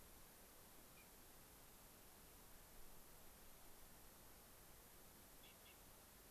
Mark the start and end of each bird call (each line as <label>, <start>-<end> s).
Gray-crowned Rosy-Finch (Leucosticte tephrocotis), 0.9-1.1 s